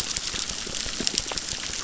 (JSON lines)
{"label": "biophony, crackle", "recorder": "SoundTrap 600"}